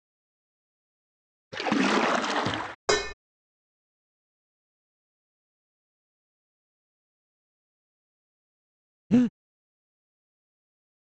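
First there is splashing. Then the sound of dishes is heard. Finally, someone breathes.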